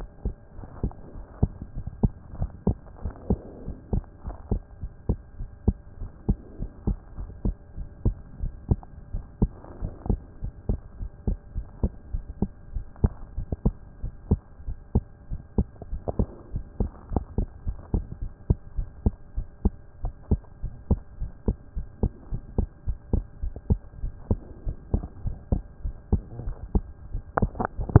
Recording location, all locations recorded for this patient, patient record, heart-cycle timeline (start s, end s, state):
pulmonary valve (PV)
pulmonary valve (PV)+tricuspid valve (TV)+mitral valve (MV)
#Age: Child
#Sex: Male
#Height: 123.0 cm
#Weight: 22.7 kg
#Pregnancy status: False
#Murmur: Absent
#Murmur locations: nan
#Most audible location: nan
#Systolic murmur timing: nan
#Systolic murmur shape: nan
#Systolic murmur grading: nan
#Systolic murmur pitch: nan
#Systolic murmur quality: nan
#Diastolic murmur timing: nan
#Diastolic murmur shape: nan
#Diastolic murmur grading: nan
#Diastolic murmur pitch: nan
#Diastolic murmur quality: nan
#Outcome: Normal
#Campaign: 2014 screening campaign
0.00	16.38	unannotated
16.38	16.54	diastole
16.54	16.64	S1
16.64	16.80	systole
16.80	16.90	S2
16.90	17.12	diastole
17.12	17.24	S1
17.24	17.38	systole
17.38	17.48	S2
17.48	17.66	diastole
17.66	17.78	S1
17.78	17.92	systole
17.92	18.04	S2
18.04	18.22	diastole
18.22	18.32	S1
18.32	18.48	systole
18.48	18.56	S2
18.56	18.76	diastole
18.76	18.88	S1
18.88	19.04	systole
19.04	19.14	S2
19.14	19.36	diastole
19.36	19.46	S1
19.46	19.64	systole
19.64	19.72	S2
19.72	20.02	diastole
20.02	20.14	S1
20.14	20.30	systole
20.30	20.40	S2
20.40	20.64	diastole
20.64	20.74	S1
20.74	20.90	systole
20.90	21.00	S2
21.00	21.20	diastole
21.20	21.30	S1
21.30	21.46	systole
21.46	21.56	S2
21.56	21.76	diastole
21.76	21.86	S1
21.86	22.02	systole
22.02	22.12	S2
22.12	22.32	diastole
22.32	22.42	S1
22.42	22.56	systole
22.56	22.68	S2
22.68	22.86	diastole
22.86	22.98	S1
22.98	23.12	systole
23.12	23.24	S2
23.24	23.42	diastole
23.42	23.52	S1
23.52	23.68	systole
23.68	23.78	S2
23.78	24.02	diastole
24.02	24.12	S1
24.12	24.30	systole
24.30	24.40	S2
24.40	24.66	diastole
24.66	24.76	S1
24.76	24.92	systole
24.92	25.02	S2
25.02	25.24	diastole
25.24	25.36	S1
25.36	25.50	systole
25.50	25.64	S2
25.64	25.84	diastole
25.84	28.00	unannotated